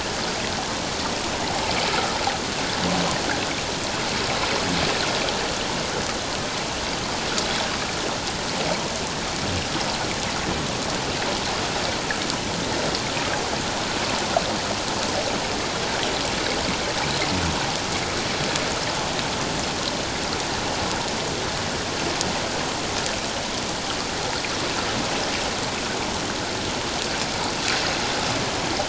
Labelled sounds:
1.9	2.2	water noise, 1.2 to 1.5 kHz

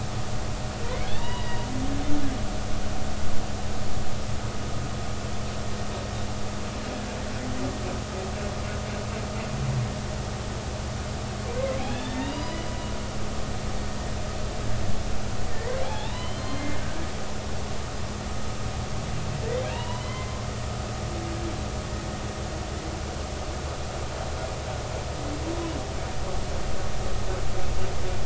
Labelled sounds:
1.1	1.6	humpback whale, 0.86 to 4.8 kHz
11.5	12.7	humpback whale, 1.6 to 5.0 kHz
15.5	16.8	humpback whale, 0.80 to 4.3 kHz
19.4	20.5	humpback whale, 0.90 to 3.2 kHz

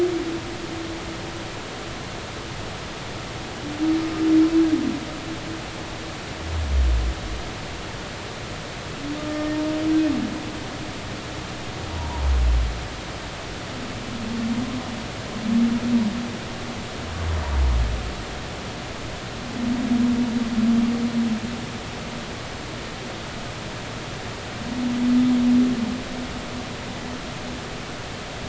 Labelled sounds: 9.2	9.6	humpback whale, 1.2 to 1.9 kHz
12.0	12.3	humpback whale, 0.83 to 1.0 kHz

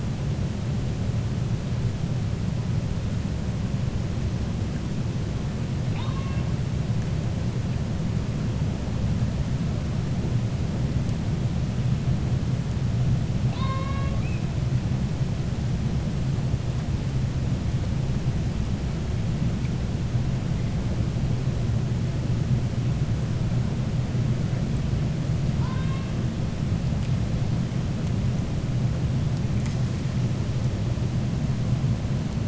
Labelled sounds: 5.8	6.5	killer whale, 0.84 to 4.3 kHz
13.4	14.5	killer whale, 0.55 to 4.7 kHz
25.5	26.1	killer whale, 0.91 to 4.7 kHz

